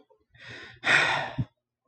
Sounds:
Sigh